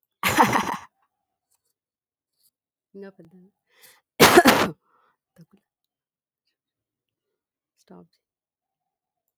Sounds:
Laughter